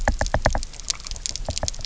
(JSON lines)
{"label": "biophony, knock", "recorder": "SoundTrap 300"}